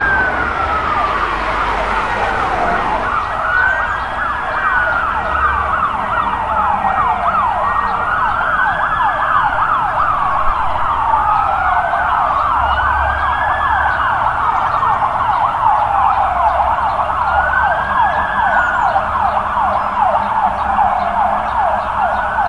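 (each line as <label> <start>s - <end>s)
A bird chirps repeatedly. 0.0s - 22.5s
An ambulance siren sounds repeatedly. 0.0s - 22.5s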